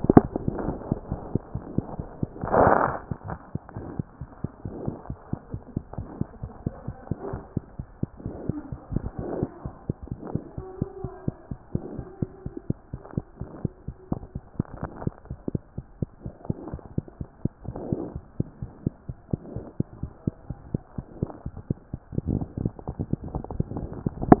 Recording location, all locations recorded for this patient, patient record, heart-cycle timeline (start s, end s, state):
mitral valve (MV)
aortic valve (AV)+mitral valve (MV)
#Age: Infant
#Sex: Male
#Height: 67.0 cm
#Weight: 8.6 kg
#Pregnancy status: False
#Murmur: Absent
#Murmur locations: nan
#Most audible location: nan
#Systolic murmur timing: nan
#Systolic murmur shape: nan
#Systolic murmur grading: nan
#Systolic murmur pitch: nan
#Systolic murmur quality: nan
#Diastolic murmur timing: nan
#Diastolic murmur shape: nan
#Diastolic murmur grading: nan
#Diastolic murmur pitch: nan
#Diastolic murmur quality: nan
#Outcome: Abnormal
#Campaign: 2014 screening campaign
0.00	5.52	unannotated
5.52	5.60	S1
5.60	5.74	systole
5.74	5.82	S2
5.82	5.98	diastole
5.98	6.07	S1
6.07	6.18	systole
6.18	6.28	S2
6.28	6.42	diastole
6.42	6.51	S1
6.51	6.64	systole
6.64	6.74	S2
6.74	6.88	diastole
6.88	6.96	S1
6.96	7.09	systole
7.09	7.18	S2
7.18	7.33	diastole
7.33	7.41	S1
7.41	7.56	systole
7.56	7.64	S2
7.64	7.80	diastole
7.80	7.88	S1
7.88	8.02	systole
8.02	8.10	S2
8.10	8.26	diastole
8.26	24.40	unannotated